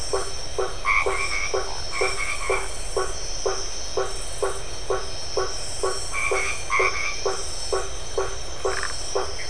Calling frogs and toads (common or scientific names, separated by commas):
blacksmith tree frog, white-edged tree frog, Phyllomedusa distincta, Dendropsophus elegans